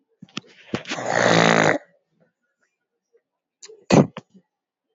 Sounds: Throat clearing